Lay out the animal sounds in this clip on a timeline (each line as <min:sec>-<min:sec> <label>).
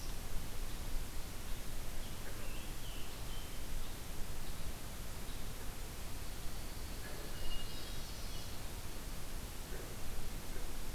0:01.9-0:03.6 Scarlet Tanager (Piranga olivacea)
0:06.1-0:07.4 Dark-eyed Junco (Junco hyemalis)
0:07.4-0:08.3 Hermit Thrush (Catharus guttatus)
0:07.5-0:08.5 Northern Parula (Setophaga americana)